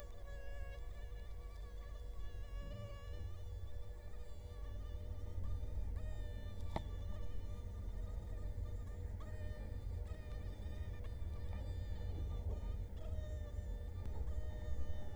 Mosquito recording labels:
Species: Culex quinquefasciatus; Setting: cup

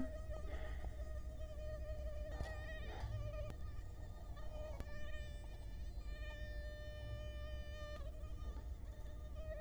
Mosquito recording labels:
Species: Culex quinquefasciatus; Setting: cup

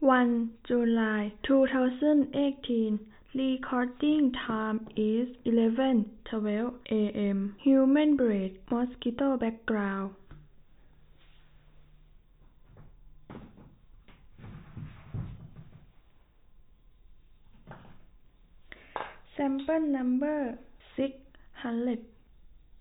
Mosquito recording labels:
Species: no mosquito; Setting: cup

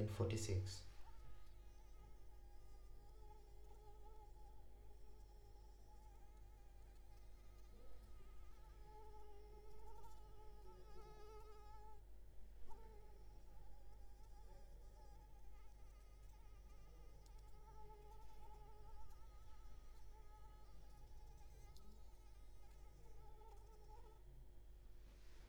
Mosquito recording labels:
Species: Anopheles arabiensis; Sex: female; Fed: unfed; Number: one; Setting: cup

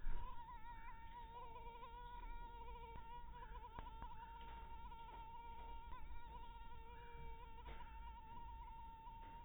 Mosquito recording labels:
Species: mosquito; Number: one; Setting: cup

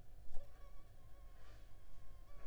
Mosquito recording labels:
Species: Anopheles funestus s.s.; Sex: female; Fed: unfed; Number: one; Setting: cup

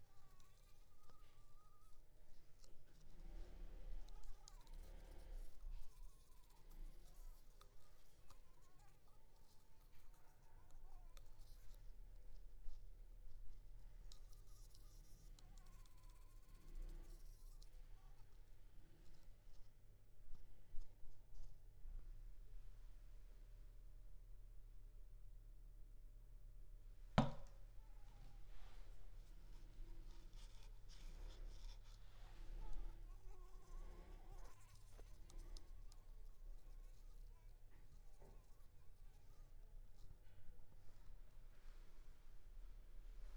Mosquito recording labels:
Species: Anopheles arabiensis; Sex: female; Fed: unfed; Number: one; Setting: cup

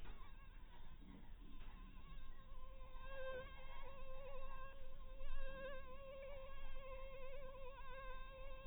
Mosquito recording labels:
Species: mosquito; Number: one; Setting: cup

